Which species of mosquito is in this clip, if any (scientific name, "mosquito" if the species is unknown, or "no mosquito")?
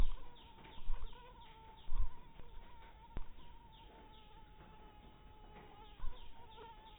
mosquito